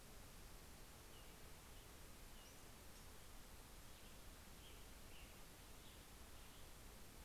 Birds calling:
Black-headed Grosbeak (Pheucticus melanocephalus)
American Robin (Turdus migratorius)
Western Tanager (Piranga ludoviciana)

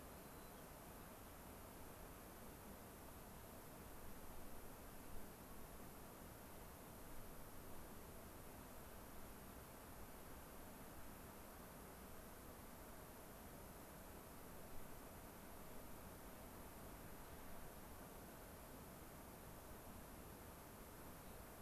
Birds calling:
White-crowned Sparrow (Zonotrichia leucophrys)

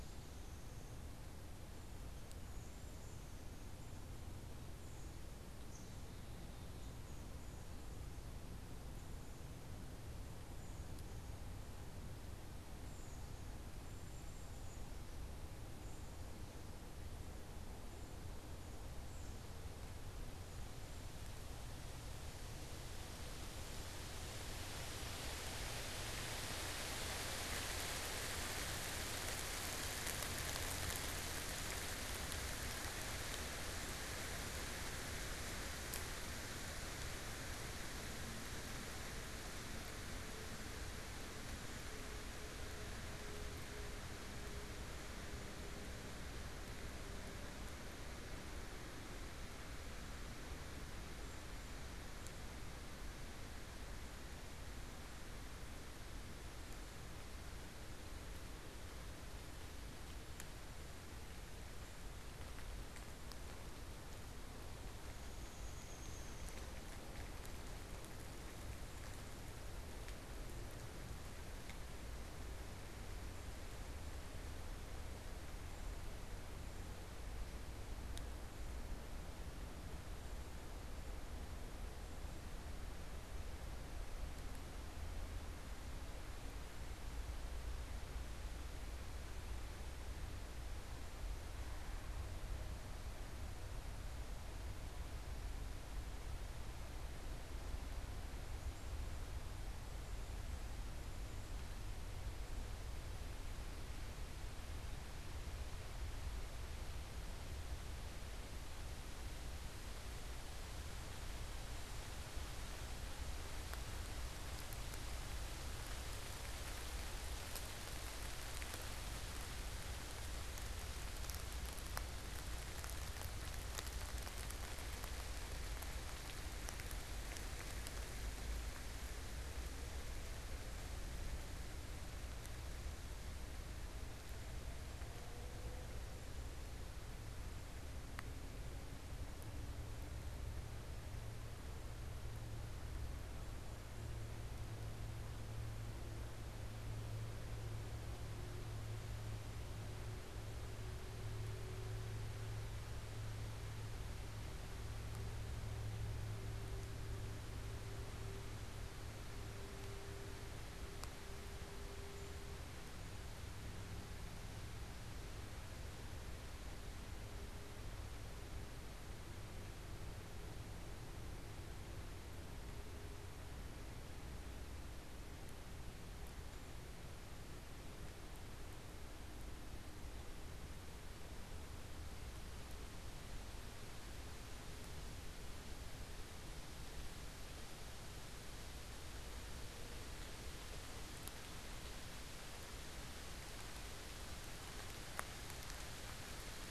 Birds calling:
Downy Woodpecker (Dryobates pubescens)
Cedar Waxwing (Bombycilla cedrorum)

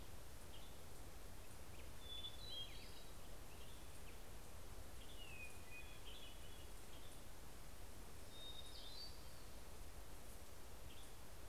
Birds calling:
Western Tanager (Piranga ludoviciana)
Hermit Thrush (Catharus guttatus)

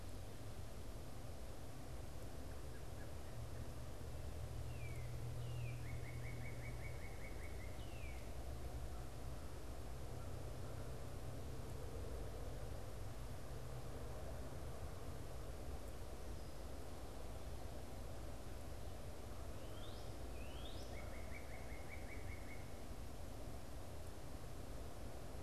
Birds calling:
American Robin (Turdus migratorius)
Northern Cardinal (Cardinalis cardinalis)

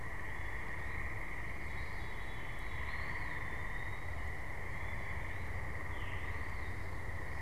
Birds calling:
Eastern Wood-Pewee (Contopus virens)
Veery (Catharus fuscescens)

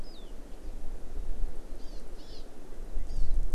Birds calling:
Hawaii Amakihi (Chlorodrepanis virens)

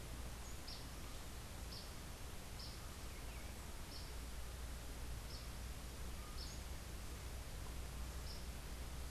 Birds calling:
Yellow Warbler (Setophaga petechia)

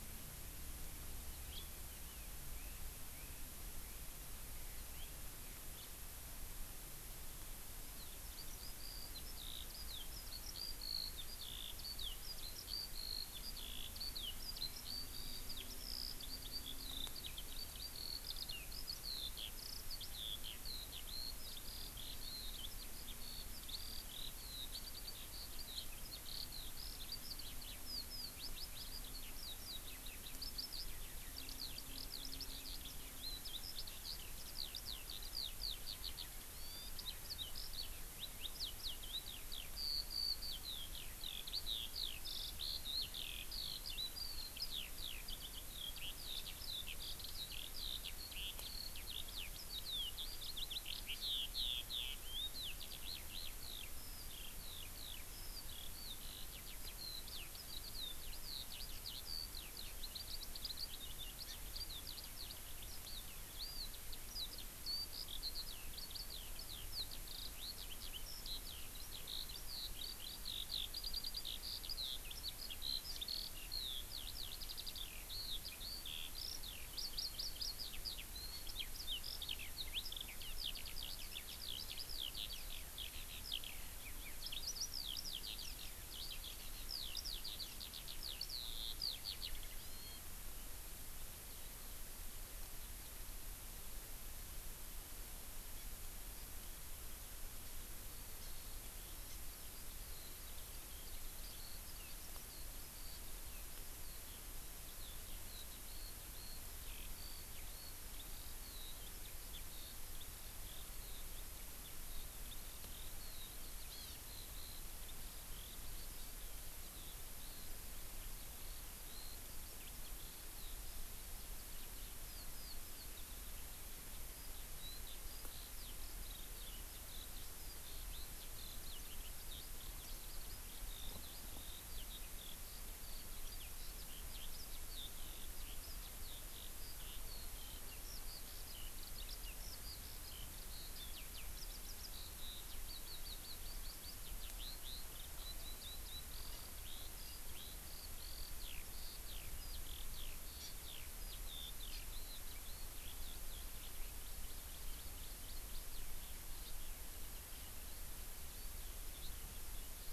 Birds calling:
Hawaii Amakihi (Chlorodrepanis virens)
Eurasian Skylark (Alauda arvensis)
House Finch (Haemorhous mexicanus)
Chinese Hwamei (Garrulax canorus)

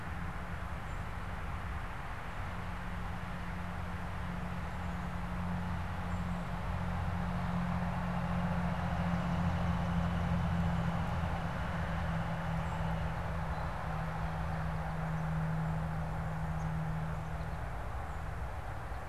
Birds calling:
Black-capped Chickadee (Poecile atricapillus)
Northern Flicker (Colaptes auratus)
unidentified bird
American Goldfinch (Spinus tristis)

